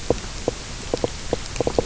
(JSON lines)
{"label": "biophony, knock croak", "recorder": "SoundTrap 300"}